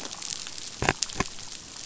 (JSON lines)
{"label": "biophony", "recorder": "SoundTrap 500"}